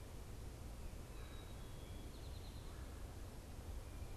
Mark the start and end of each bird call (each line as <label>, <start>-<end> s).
Eastern Towhee (Pipilo erythrophthalmus), 1.5-4.2 s